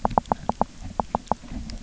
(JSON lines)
{"label": "biophony, knock", "recorder": "SoundTrap 300"}